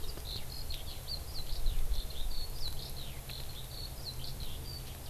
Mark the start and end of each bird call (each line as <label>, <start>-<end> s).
Eurasian Skylark (Alauda arvensis), 0.0-5.1 s